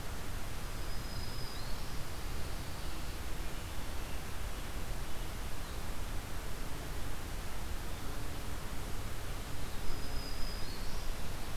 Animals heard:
Black-throated Green Warbler (Setophaga virens)

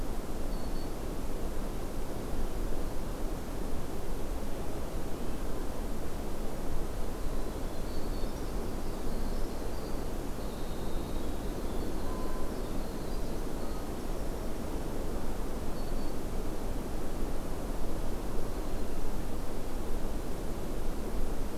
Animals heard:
Black-throated Green Warbler (Setophaga virens), Winter Wren (Troglodytes hiemalis)

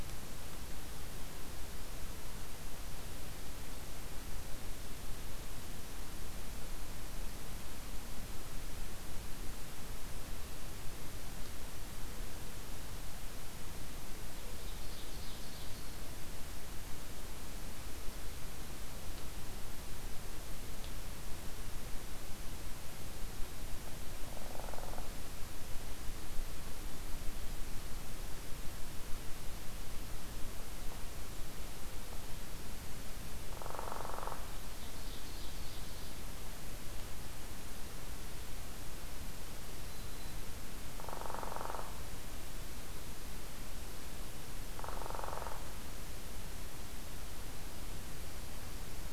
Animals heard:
Northern Flicker (Colaptes auratus), Black-throated Green Warbler (Setophaga virens), Ovenbird (Seiurus aurocapilla)

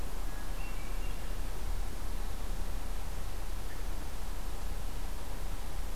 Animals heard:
Hermit Thrush (Catharus guttatus)

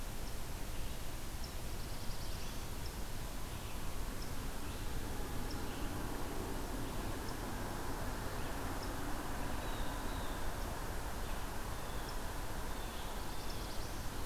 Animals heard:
Blue Jay (Cyanocitta cristata), Black-throated Blue Warbler (Setophaga caerulescens)

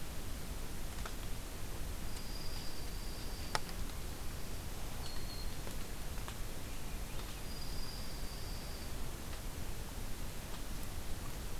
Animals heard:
Black-throated Green Warbler (Setophaga virens), Dark-eyed Junco (Junco hyemalis), Swainson's Thrush (Catharus ustulatus)

